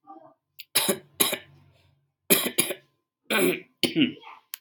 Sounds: Cough